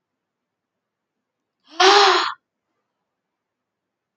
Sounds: Sniff